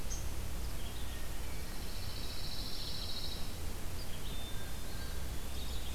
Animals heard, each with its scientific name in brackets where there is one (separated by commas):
Red-eyed Vireo (Vireo olivaceus), Hermit Thrush (Catharus guttatus), Eastern Wood-Pewee (Contopus virens), Pine Warbler (Setophaga pinus)